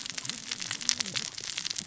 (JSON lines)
{"label": "biophony, cascading saw", "recorder": "SoundTrap 600 or HydroMoth"}